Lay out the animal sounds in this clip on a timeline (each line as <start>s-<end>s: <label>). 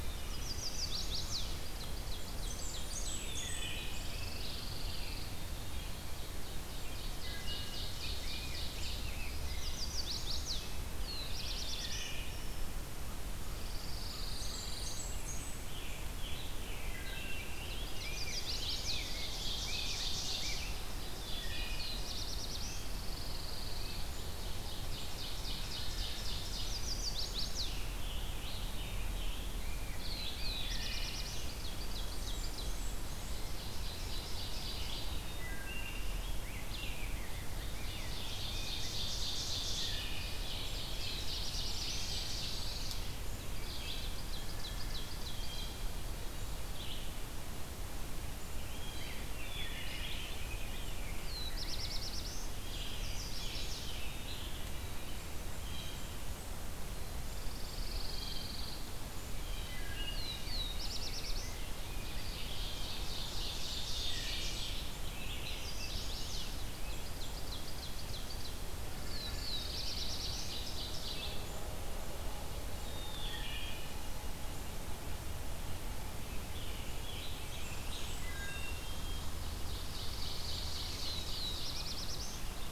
0.0s-1.9s: Chestnut-sided Warbler (Setophaga pensylvanica)
1.4s-3.3s: Ovenbird (Seiurus aurocapilla)
2.1s-3.8s: Blackburnian Warbler (Setophaga fusca)
3.1s-5.3s: Scarlet Tanager (Piranga olivacea)
3.1s-4.2s: Wood Thrush (Hylocichla mustelina)
3.6s-5.4s: Pine Warbler (Setophaga pinus)
5.9s-9.2s: Ovenbird (Seiurus aurocapilla)
7.0s-9.9s: Rose-breasted Grosbeak (Pheucticus ludovicianus)
9.2s-10.9s: Chestnut-sided Warbler (Setophaga pensylvanica)
10.7s-12.4s: Black-throated Blue Warbler (Setophaga caerulescens)
11.6s-12.5s: Wood Thrush (Hylocichla mustelina)
13.5s-15.2s: Pine Warbler (Setophaga pinus)
13.7s-15.7s: Blackburnian Warbler (Setophaga fusca)
15.2s-17.6s: Scarlet Tanager (Piranga olivacea)
16.4s-17.7s: Wood Thrush (Hylocichla mustelina)
17.3s-20.9s: Rose-breasted Grosbeak (Pheucticus ludovicianus)
17.8s-19.2s: Chestnut-sided Warbler (Setophaga pensylvanica)
18.3s-22.1s: Ovenbird (Seiurus aurocapilla)
21.1s-22.5s: Wood Thrush (Hylocichla mustelina)
21.5s-23.0s: Black-throated Blue Warbler (Setophaga caerulescens)
22.5s-24.2s: Pine Warbler (Setophaga pinus)
24.2s-26.8s: Ovenbird (Seiurus aurocapilla)
26.5s-27.9s: Chestnut-sided Warbler (Setophaga pensylvanica)
27.4s-29.6s: Scarlet Tanager (Piranga olivacea)
29.4s-31.4s: Rose-breasted Grosbeak (Pheucticus ludovicianus)
29.9s-31.5s: Black-throated Blue Warbler (Setophaga caerulescens)
30.7s-32.8s: Ovenbird (Seiurus aurocapilla)
31.8s-33.4s: Blackburnian Warbler (Setophaga fusca)
33.1s-35.3s: Ovenbird (Seiurus aurocapilla)
35.2s-36.2s: Wood Thrush (Hylocichla mustelina)
35.8s-39.1s: Rose-breasted Grosbeak (Pheucticus ludovicianus)
36.6s-50.3s: Red-eyed Vireo (Vireo olivaceus)
37.8s-43.0s: Ovenbird (Seiurus aurocapilla)
40.7s-42.3s: Black-throated Blue Warbler (Setophaga caerulescens)
41.0s-42.7s: Blackburnian Warbler (Setophaga fusca)
41.2s-43.2s: Pine Warbler (Setophaga pinus)
43.5s-45.8s: Ovenbird (Seiurus aurocapilla)
45.1s-46.0s: Blue Jay (Cyanocitta cristata)
48.6s-49.4s: Blue Jay (Cyanocitta cristata)
49.2s-52.0s: Rose-breasted Grosbeak (Pheucticus ludovicianus)
50.9s-52.6s: Black-throated Blue Warbler (Setophaga caerulescens)
52.6s-54.8s: Scarlet Tanager (Piranga olivacea)
52.6s-54.0s: Chestnut-sided Warbler (Setophaga pensylvanica)
55.5s-56.3s: Blue Jay (Cyanocitta cristata)
56.9s-58.9s: Pine Warbler (Setophaga pinus)
58.0s-58.7s: Blue Jay (Cyanocitta cristata)
59.3s-59.9s: Blue Jay (Cyanocitta cristata)
59.6s-60.3s: Wood Thrush (Hylocichla mustelina)
59.9s-61.7s: Black-throated Blue Warbler (Setophaga caerulescens)
60.6s-63.1s: Rose-breasted Grosbeak (Pheucticus ludovicianus)
61.7s-65.0s: Ovenbird (Seiurus aurocapilla)
63.2s-64.8s: Blackburnian Warbler (Setophaga fusca)
63.9s-65.0s: Wood Thrush (Hylocichla mustelina)
64.8s-67.0s: Rose-breasted Grosbeak (Pheucticus ludovicianus)
65.4s-66.5s: Chestnut-sided Warbler (Setophaga pensylvanica)
66.5s-68.5s: Ovenbird (Seiurus aurocapilla)
68.8s-70.3s: Pine Warbler (Setophaga pinus)
68.9s-70.6s: Black-throated Blue Warbler (Setophaga caerulescens)
69.9s-71.4s: Ovenbird (Seiurus aurocapilla)
72.8s-73.5s: Blue Jay (Cyanocitta cristata)
73.0s-74.1s: Wood Thrush (Hylocichla mustelina)
76.1s-78.3s: Scarlet Tanager (Piranga olivacea)
77.0s-78.8s: Blackburnian Warbler (Setophaga fusca)
78.0s-78.8s: Wood Thrush (Hylocichla mustelina)
78.4s-79.4s: Black-capped Chickadee (Poecile atricapillus)
79.4s-81.4s: Ovenbird (Seiurus aurocapilla)
79.6s-81.2s: Pine Warbler (Setophaga pinus)
80.9s-82.4s: Black-throated Blue Warbler (Setophaga caerulescens)